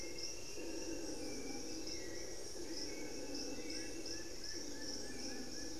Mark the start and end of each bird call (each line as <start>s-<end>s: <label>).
0.0s-5.8s: Hauxwell's Thrush (Turdus hauxwelli)
1.7s-2.2s: unidentified bird
3.5s-5.8s: Long-winged Antwren (Myrmotherula longipennis)
3.5s-5.8s: Plain-winged Antshrike (Thamnophilus schistaceus)